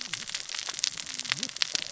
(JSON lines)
{"label": "biophony, cascading saw", "recorder": "SoundTrap 600 or HydroMoth"}